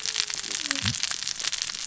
{"label": "biophony, cascading saw", "recorder": "SoundTrap 600 or HydroMoth"}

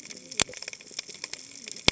{"label": "biophony, cascading saw", "recorder": "HydroMoth"}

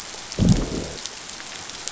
{"label": "biophony, growl", "recorder": "SoundTrap 500"}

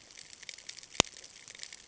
{"label": "ambient", "recorder": "HydroMoth"}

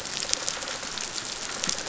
{"label": "biophony, rattle response", "recorder": "SoundTrap 500"}
{"label": "biophony", "recorder": "SoundTrap 500"}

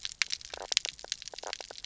{"label": "biophony, knock croak", "recorder": "SoundTrap 300"}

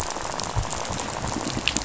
{"label": "biophony, rattle", "recorder": "SoundTrap 500"}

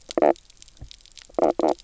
{"label": "biophony, knock croak", "recorder": "SoundTrap 300"}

